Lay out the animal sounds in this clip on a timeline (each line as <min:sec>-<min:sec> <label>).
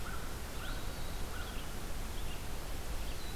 0:00.0-0:01.9 American Crow (Corvus brachyrhynchos)
0:00.0-0:03.4 Red-eyed Vireo (Vireo olivaceus)
0:02.7-0:03.4 Black-throated Blue Warbler (Setophaga caerulescens)